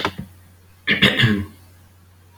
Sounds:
Throat clearing